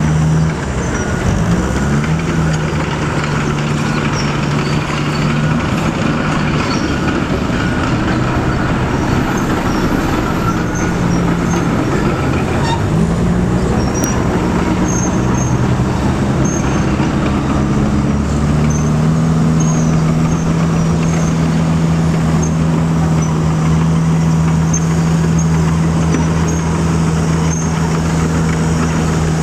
does the engine maintain a constant thrum throughout?
yes